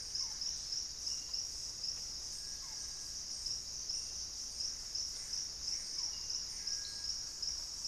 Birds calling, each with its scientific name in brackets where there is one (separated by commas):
Buff-throated Woodcreeper (Xiphorhynchus guttatus), Thrush-like Wren (Campylorhynchus turdinus), Gray Antbird (Cercomacra cinerascens), unidentified bird, Barred Forest-Falcon (Micrastur ruficollis)